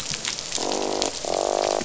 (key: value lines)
label: biophony, croak
recorder: SoundTrap 500